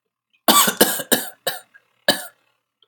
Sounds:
Cough